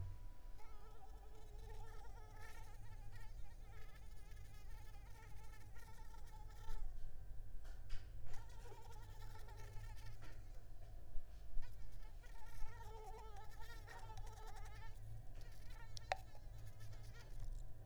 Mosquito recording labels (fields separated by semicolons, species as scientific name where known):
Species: Mansonia uniformis; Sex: female; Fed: unfed; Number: one; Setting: cup